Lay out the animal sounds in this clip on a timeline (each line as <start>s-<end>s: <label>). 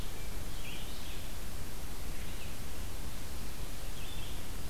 0.3s-4.7s: Red-eyed Vireo (Vireo olivaceus)